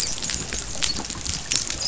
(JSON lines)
{"label": "biophony, dolphin", "recorder": "SoundTrap 500"}